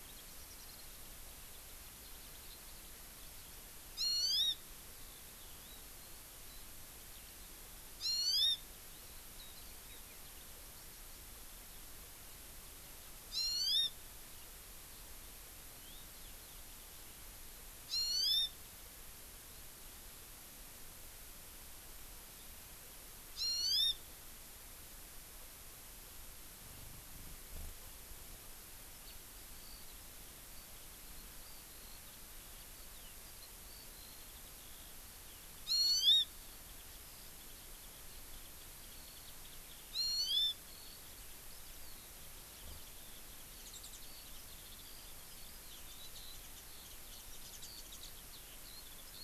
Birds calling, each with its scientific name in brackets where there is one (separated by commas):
Warbling White-eye (Zosterops japonicus), Hawaii Amakihi (Chlorodrepanis virens), Eurasian Skylark (Alauda arvensis)